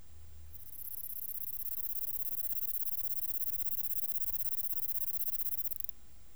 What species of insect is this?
Platycleis escalerai